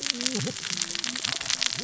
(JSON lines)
{"label": "biophony, cascading saw", "recorder": "SoundTrap 600 or HydroMoth"}